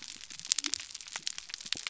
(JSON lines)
{"label": "biophony", "recorder": "SoundTrap 300"}